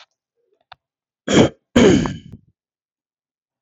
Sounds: Throat clearing